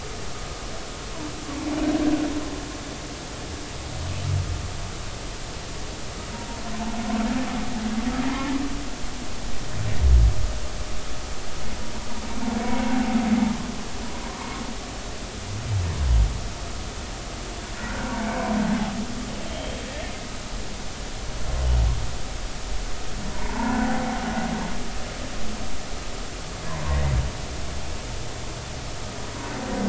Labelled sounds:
17.8	18.6	humpback whale, 0.83 to 1.6 kHz
19.4	19.8	humpback whale, 3.0 to 3.3 kHz
23.3	24.0	humpback whale, 0.83 to 1.6 kHz
26.7	27.0	humpback whale, 0.90 to 1.2 kHz

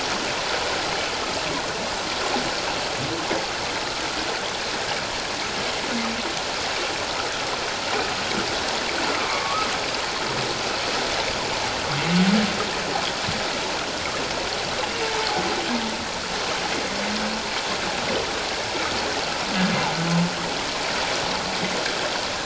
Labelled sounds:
9.1	9.7	humpback whale, 1.0 to 1.3 kHz
15.0	15.3	humpback whale, 0.81 to 0.97 kHz

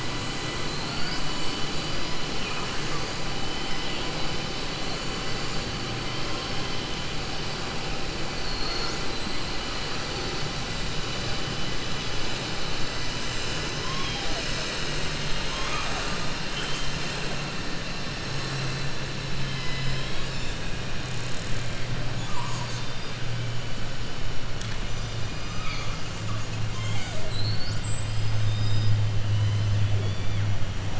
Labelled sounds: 0.7	1.3	killer whale, southern resident, 4.0 to 5.3 kHz
2.3	3.0	killer whale, southern resident, 1.1 to 3.0 kHz
8.3	9.3	killer whale, southern resident, 4.2 to 8.0 kHz
29.2	30.5	killer whale, southern resident, 2.0 to 4.7 kHz

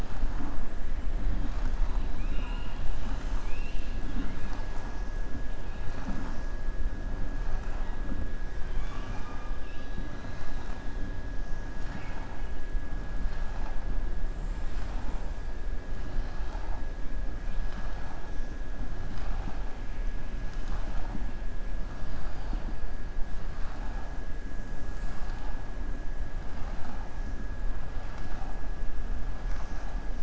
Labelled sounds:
2.0	2.9	killer whale, southern resident, 0.94 to 4.0 kHz
8.6	10.0	killer whale, southern resident, 0.82 to 6.9 kHz
11.7	12.4	killer whale, southern resident, 0.88 to 7.0 kHz

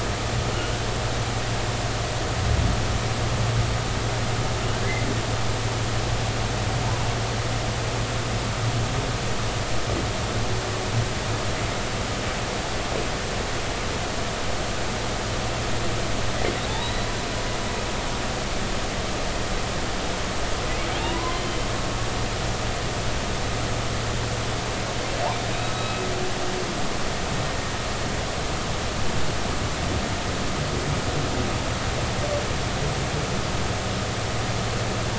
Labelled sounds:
0.5	0.8	humpback whale, 1.4 to 1.6 kHz
16.7	17.1	humpback whale, 3.5 to 4.1 kHz
21.0	21.6	humpback whale, 0.86 to 3.2 kHz
25.5	26.1	humpback whale, 1.2 to 3.9 kHz

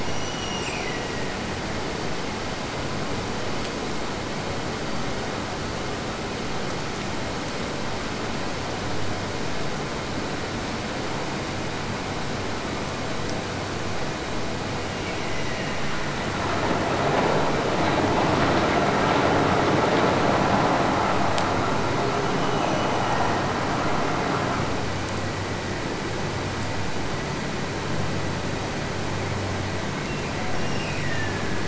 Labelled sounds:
0.0	1.5	killer whale, Bigg's (transient), Gulf of Alaska transient, 1.6 to 8.0 kHz
14.8	15.8	killer whale, Bigg's (transient), Gulf of Alaska transient, 1.7 to 3.0 kHz
22.2	23.5	killer whale, Bigg's (transient), Gulf of Alaska transient, 1.7 to 3.1 kHz
30.0	31.6	killer whale, Bigg's (transient), Gulf of Alaska transient, 1.5 to 5.8 kHz

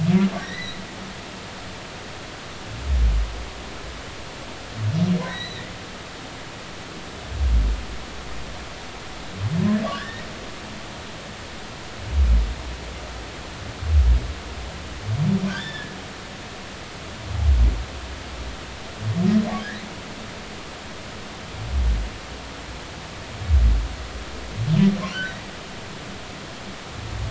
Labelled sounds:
0.4	0.8	humpback whale, 1.8 to 4.3 kHz
5.2	5.7	humpback whale, 1.8 to 4.1 kHz
9.9	10.2	humpback whale, 1.4 to 2.0 kHz
15.5	16.0	humpback whale, 1.4 to 5.4 kHz
25.1	25.4	humpback whale, 1.4 to 2.0 kHz

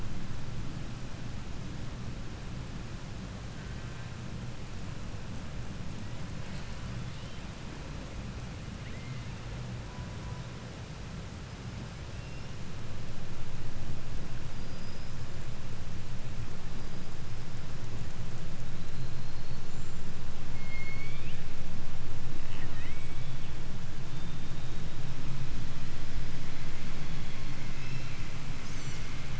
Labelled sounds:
3.5	4.3	killer whale, 0.73 to 5.1 kHz
5.8	7.4	killer whale, 0.83 to 6.4 kHz
8.5	9.5	killer whale, 0.68 to 5.0 kHz
9.8	10.8	killer whale, 0.44 to 1.4 kHz
11.3	12.7	killer whale, 2.0 to 6.2 kHz
14.5	15.2	killer whale, 4.4 to 6.2 kHz
16.6	17.6	killer whale, 4.5 to 5.4 kHz
18.6	20.2	killer whale, 3.7 to 7.8 kHz
20.4	21.4	killer whale, southern resident, 0.72 to 7.3 kHz
22.4	23.8	killer whale, southern resident, 0.33 to 8.0 kHz
24.1	25.1	killer whale, 3.0 to 3.9 kHz
27.7	28.3	killer whale, 1.2 to 6.2 kHz
28.6	29.1	killer whale, 4.1 to 8.0 kHz

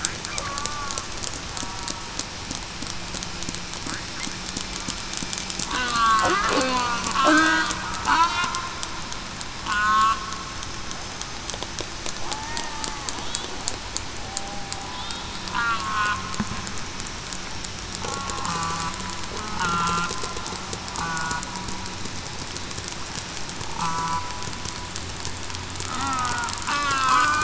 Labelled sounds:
5.7	6.2	killer whale, southern resident, 1.3 to 1.6 kHz
6.6	7.6	killer whale, southern resident, 1.2 to 2.6 kHz
8.1	8.6	killer whale, southern resident, 1.2 to 1.4 kHz
9.6	10.2	killer whale, southern resident, 1.0 to 1.6 kHz
12.3	12.7	killer whale, southern resident, 0.80 to 1.0 kHz
14.2	14.7	killer whale, southern resident, 0.75 to 0.82 kHz
15.5	16.2	killer whale, southern resident, 1.2 to 1.5 kHz
18.1	18.5	killer whale, southern resident, 0.98 to 1.1 kHz
19.6	20.1	killer whale, southern resident, 1.2 to 3.3 kHz
21.0	21.4	killer whale, southern resident, 0.94 to 1.5 kHz
23.6	24.1	killer whale, southern resident, 0.87 to 1.0 kHz
25.8	27.4	killer whale, southern resident, 1.0 to 1.8 kHz

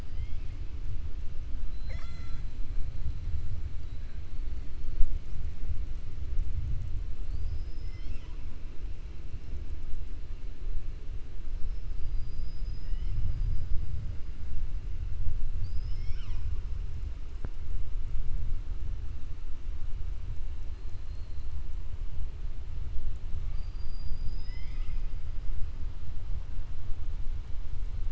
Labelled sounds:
0.0	0.5	killer whale, 2.0 to 4.9 kHz
1.6	2.5	killer whale, 0.57 to 7.6 kHz
7.2	8.5	killer whale, 0.97 to 7.7 kHz
15.5	16.5	killer whale, 1.0 to 7.5 kHz

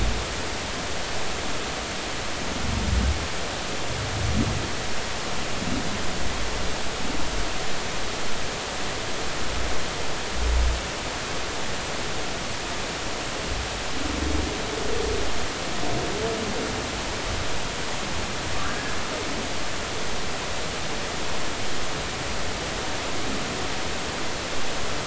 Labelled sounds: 18.6	19.0	killer whale, 1.5 to 1.7 kHz

